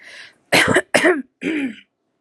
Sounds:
Throat clearing